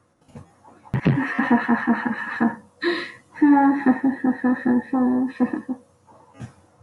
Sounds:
Laughter